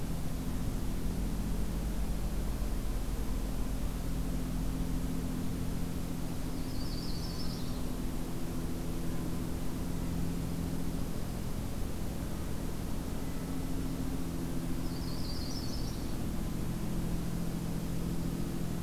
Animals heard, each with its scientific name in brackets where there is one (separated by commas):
Yellow-rumped Warbler (Setophaga coronata), Dark-eyed Junco (Junco hyemalis)